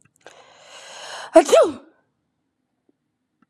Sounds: Sneeze